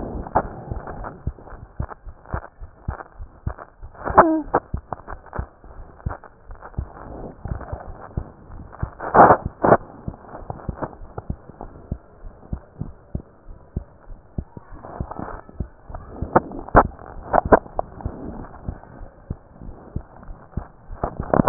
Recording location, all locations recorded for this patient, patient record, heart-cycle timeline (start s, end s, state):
pulmonary valve (PV)
pulmonary valve (PV)+tricuspid valve (TV)+mitral valve (MV)
#Age: Child
#Sex: Female
#Height: 88.0 cm
#Weight: 12.1 kg
#Pregnancy status: False
#Murmur: Unknown
#Murmur locations: nan
#Most audible location: nan
#Systolic murmur timing: nan
#Systolic murmur shape: nan
#Systolic murmur grading: nan
#Systolic murmur pitch: nan
#Systolic murmur quality: nan
#Diastolic murmur timing: nan
#Diastolic murmur shape: nan
#Diastolic murmur grading: nan
#Diastolic murmur pitch: nan
#Diastolic murmur quality: nan
#Outcome: Abnormal
#Campaign: 2015 screening campaign
0.00	2.04	unannotated
2.04	2.16	S1
2.16	2.28	systole
2.28	2.42	S2
2.42	2.60	diastole
2.60	2.70	S1
2.70	2.82	systole
2.82	2.96	S2
2.96	3.18	diastole
3.18	3.28	S1
3.28	3.42	systole
3.42	3.56	S2
3.56	3.82	diastole
3.82	3.90	S1
3.90	4.71	unannotated
4.71	4.82	S2
4.82	5.08	diastole
5.08	5.20	S1
5.20	5.34	systole
5.34	5.48	S2
5.48	5.75	diastole
5.75	5.86	S1
5.86	6.02	systole
6.02	6.17	S2
6.17	6.48	diastole
6.48	6.60	S1
6.60	6.74	systole
6.74	6.86	S2
6.86	7.18	diastole
7.18	7.30	S1
7.30	7.48	systole
7.48	7.61	S2
7.61	7.82	diastole
7.82	7.94	S1
7.94	8.14	systole
8.14	8.25	S2
8.25	8.54	diastole
8.54	8.66	S1
8.66	8.78	systole
8.78	8.92	S2
8.92	10.01	unannotated
10.01	10.14	S2
10.14	10.32	diastole
10.32	10.46	S1
10.46	10.64	systole
10.64	10.75	S2
10.75	10.97	diastole
10.97	11.08	S1
11.08	11.26	diastole
11.26	11.37	S2
11.37	11.60	diastole
11.60	11.74	S1
11.74	11.88	systole
11.88	12.02	S2
12.02	12.24	diastole
12.24	12.34	S1
12.34	12.48	systole
12.48	12.60	S2
12.60	12.80	diastole
12.80	12.94	S1
12.94	13.10	systole
13.10	13.24	S2
13.24	13.48	diastole
13.48	13.58	S1
13.58	13.72	systole
13.72	13.88	S2
13.88	14.10	diastole
14.10	14.20	S1
14.20	14.34	systole
14.34	14.48	S2
14.48	14.67	diastole
14.67	14.82	S1
14.82	21.49	unannotated